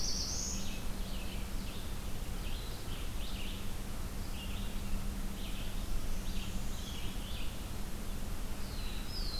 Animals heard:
Red-eyed Vireo (Vireo olivaceus), Northern Parula (Setophaga americana), Black-throated Blue Warbler (Setophaga caerulescens)

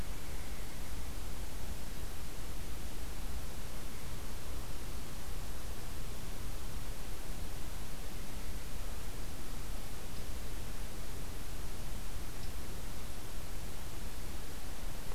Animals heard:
Pileated Woodpecker (Dryocopus pileatus)

